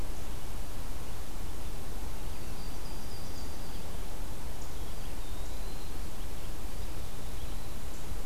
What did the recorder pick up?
Yellow-rumped Warbler, Eastern Wood-Pewee